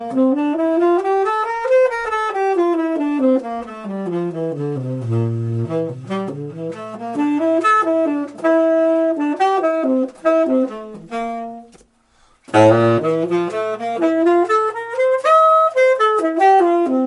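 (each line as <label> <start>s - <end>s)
A jazz melody is played on a saxophone. 6.9s - 11.8s
A jazz melody played on the saxophone, beginning with a deep, heavy tone. 12.3s - 17.1s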